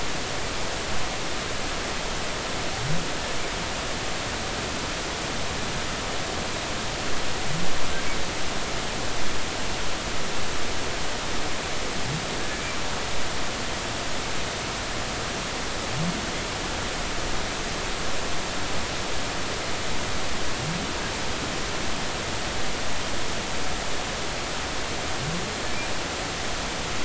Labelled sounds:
12.5	12.8	humpback whale, 2.3 to 2.4 kHz

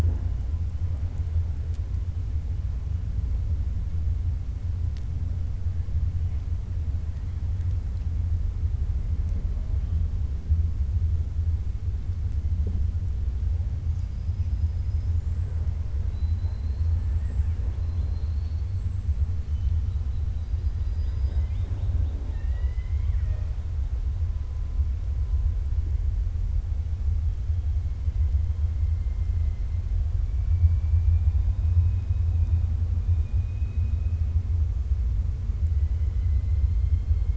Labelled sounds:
16.0	16.9	killer whale, 3.8 to 4.4 kHz
17.8	18.7	killer whale, 3.4 to 4.5 kHz
30.4	31.4	killer whale, 1.4 to 2.5 kHz
35.7	37.3	killer whale, 2.0 to 4.3 kHz

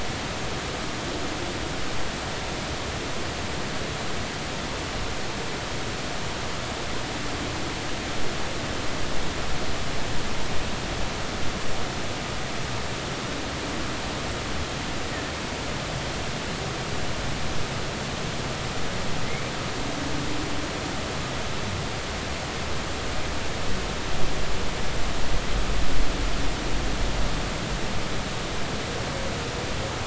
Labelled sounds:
19.2	19.5	humpback whale, 2.0 to 2.4 kHz

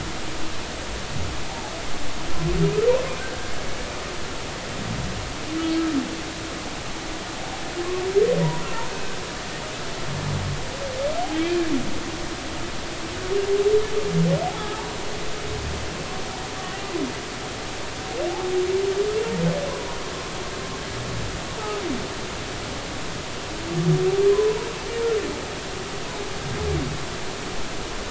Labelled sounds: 11.4	11.7	humpback whale, 2.2 to 2.5 kHz
14.6	14.8	humpback whale, 1.2 to 1.4 kHz

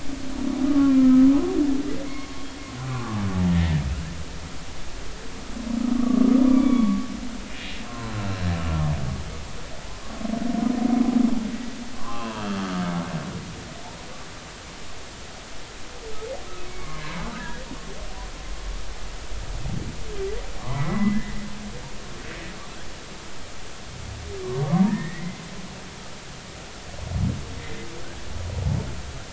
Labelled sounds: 0.7	1.3	humpback whale, 0.99 to 1.4 kHz
2.1	2.3	humpback whale, 1.0 to 1.1 kHz
3.5	3.8	humpback whale, 1.7 to 2.1 kHz
5.9	7.0	humpback whale, 0.96 to 3.5 kHz
7.9	8.3	humpback whale, 0.99 to 1.4 kHz
11.9	12.6	humpback whale, 0.86 to 2.9 kHz
16.6	17.6	humpback whale, 0.96 to 2.3 kHz
20.6	21.3	humpback whale, 0.93 to 2.0 kHz
24.9	25.3	humpback whale, 1.7 to 2.0 kHz

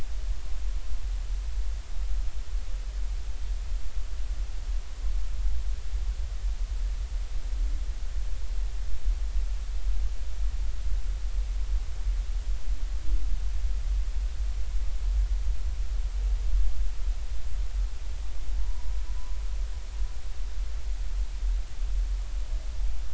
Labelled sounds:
18.6	19.0	humpback whale, 0.90 to 1.1 kHz

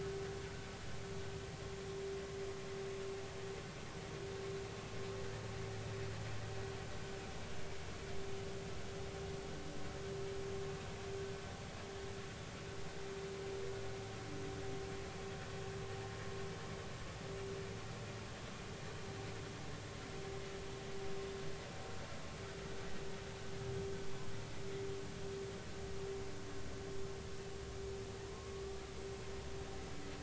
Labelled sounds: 28.3	28.6	humpback whale, 0.96 to 1.2 kHz

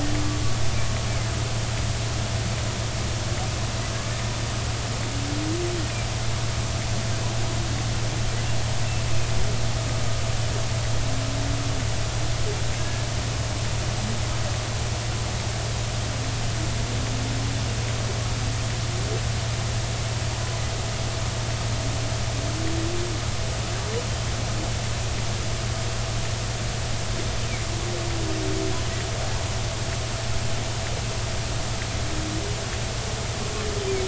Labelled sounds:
12.8	13.1	humpback whale, 1.6 to 1.8 kHz

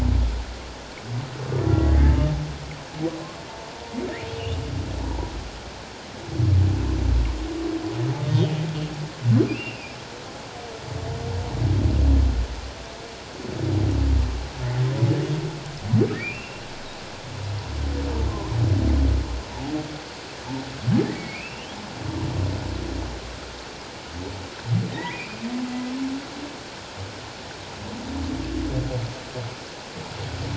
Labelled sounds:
1.7	2.2	humpback whale, 1.5 to 2.0 kHz
4.3	4.6	humpback whale, 2.6 to 3.0 kHz
5.0	5.3	humpback whale, 0.88 to 1.0 kHz
8.2	8.5	humpback whale, 3.5 to 3.8 kHz
9.5	9.9	humpback whale, 2.3 to 2.9 kHz
16.2	16.7	humpback whale, 2.2 to 2.9 kHz
21.1	21.8	humpback whale, 2.1 to 3.4 kHz
24.9	25.4	humpback whale, 1.8 to 2.7 kHz

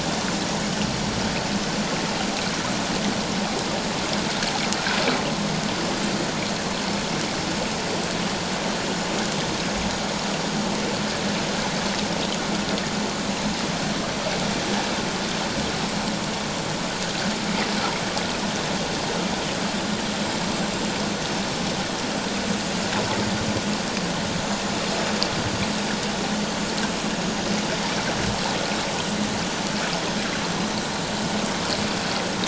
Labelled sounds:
20.6	20.8	vessel noise, 7.3 to 7.5 kHz

